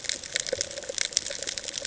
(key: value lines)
label: ambient
recorder: HydroMoth